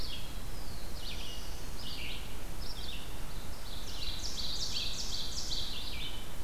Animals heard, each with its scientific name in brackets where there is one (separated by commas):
Red-eyed Vireo (Vireo olivaceus), Black-throated Blue Warbler (Setophaga caerulescens), Ovenbird (Seiurus aurocapilla)